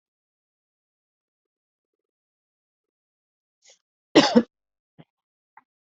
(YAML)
expert_labels:
- quality: good
  cough_type: dry
  dyspnea: false
  wheezing: false
  stridor: false
  choking: false
  congestion: false
  nothing: true
  diagnosis: healthy cough
  severity: pseudocough/healthy cough
age: 45
gender: female
respiratory_condition: false
fever_muscle_pain: false
status: COVID-19